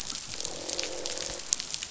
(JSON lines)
{"label": "biophony, croak", "recorder": "SoundTrap 500"}